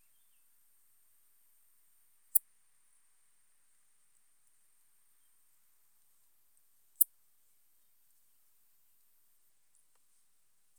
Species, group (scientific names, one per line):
Poecilimon ornatus
Orthoptera